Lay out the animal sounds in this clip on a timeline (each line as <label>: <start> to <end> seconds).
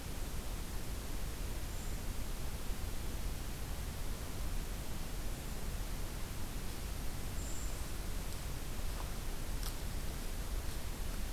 Brown Creeper (Certhia americana): 1.4 to 2.1 seconds
Brown Creeper (Certhia americana): 7.0 to 7.8 seconds